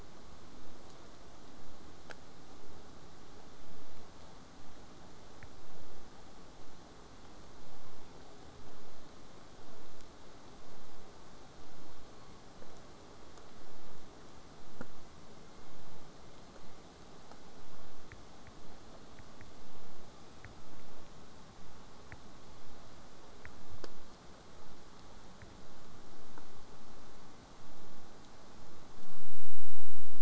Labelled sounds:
20.1	20.4	killer whale, southern resident, J pod, 0.96 to 8.0 kHz

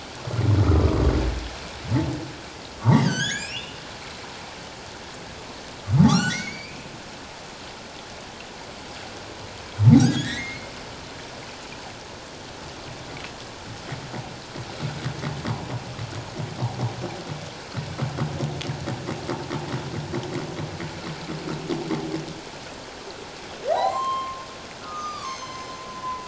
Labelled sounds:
0.6	1.0	humpback whale, 1.1 to 1.5 kHz
2.8	3.8	humpback whale, 1.4 to 7.8 kHz
6.1	7.0	humpback whale, 1.1 to 4.8 kHz
9.8	10.7	humpback whale, 0.78 to 3.9 kHz
23.7	24.4	humpback whale, 0.78 to 4.3 kHz
24.8	26.2	humpback whale, 0.94 to 6.5 kHz

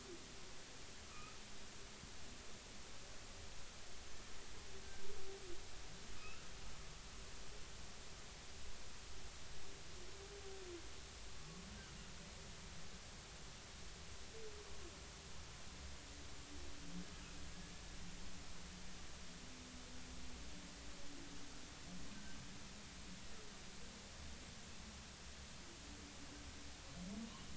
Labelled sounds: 1.0	1.4	humpback whale, 1.1 to 1.3 kHz
6.2	6.5	humpback whale, 1.2 to 2.8 kHz

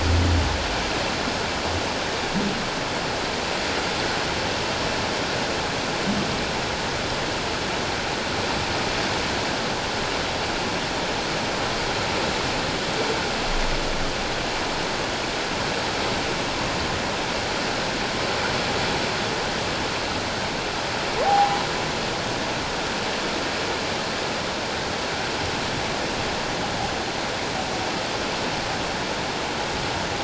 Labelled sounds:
21.2	21.6	humpback whale, 0.78 to 0.88 kHz

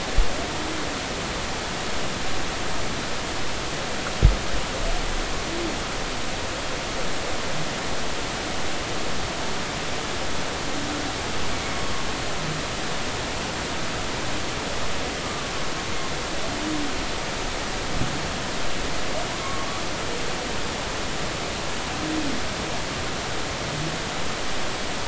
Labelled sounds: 11.5	11.8	humpback whale, 2.1 to 2.3 kHz
15.2	15.5	humpback whale, 1.1 to 1.2 kHz
19.4	19.7	humpback whale, 0.99 to 1.2 kHz

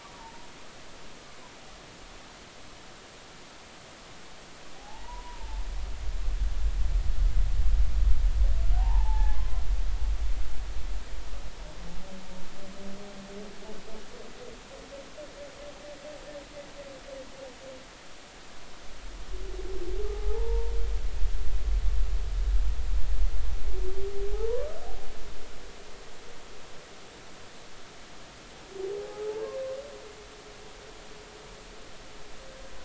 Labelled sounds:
4.8	5.6	humpback whale, 0.80 to 1.0 kHz
8.8	9.6	humpback whale, 0.80 to 1.1 kHz
20.0	20.7	humpback whale, 0.80 to 0.99 kHz
24.3	24.7	humpback whale, 0.80 to 1.2 kHz
28.9	29.3	humpback whale, 0.80 to 0.90 kHz

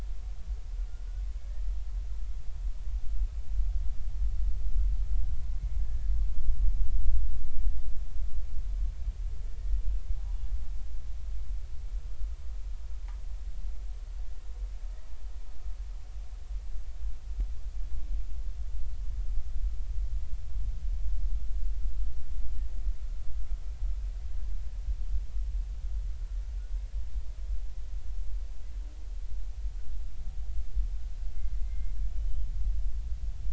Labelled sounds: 5.8	6.1	humpback whale, 1.6 to 1.8 kHz
9.4	9.8	humpback whale, 1.7 to 1.9 kHz
31.6	31.9	humpback whale, 2.0 to 2.2 kHz

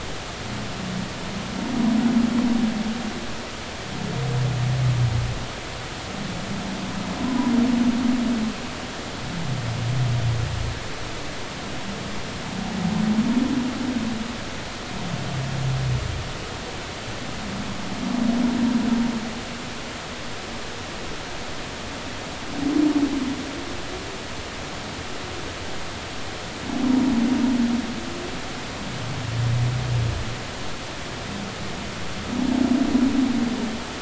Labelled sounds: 7.2	7.5	humpback whale, 0.93 to 1.1 kHz

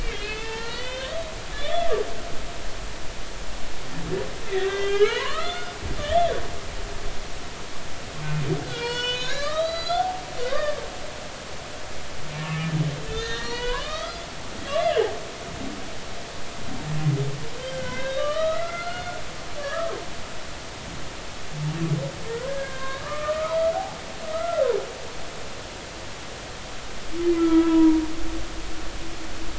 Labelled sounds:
0.0	1.2	humpback whale, 0.86 to 4.6 kHz
1.5	1.8	humpback whale, 1.7 to 1.9 kHz
4.5	6.3	humpback whale, 0.86 to 4.4 kHz
8.6	10.8	humpback whale, 0.86 to 6.8 kHz
13.1	14.3	humpback whale, 0.90 to 5.1 kHz
14.8	15.1	humpback whale, 2.6 to 3.0 kHz
17.6	20.0	humpback whale, 1.0 to 4.4 kHz
22.5	24.0	humpback whale, 0.80 to 1.9 kHz
24.3	24.7	humpback whale, 1.2 to 1.4 kHz
27.4	28.0	humpback whale, 0.90 to 1.4 kHz

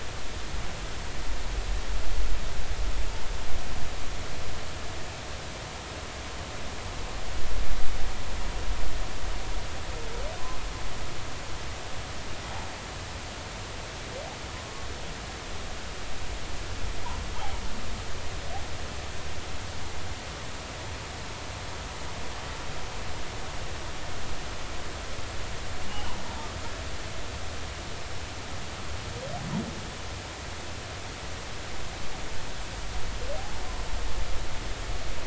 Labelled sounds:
25.9	26.2	humpback whale, 0.80 to 1.1 kHz

